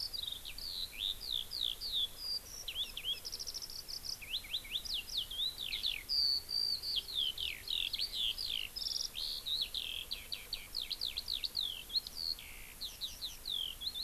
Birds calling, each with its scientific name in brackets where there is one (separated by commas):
Eurasian Skylark (Alauda arvensis)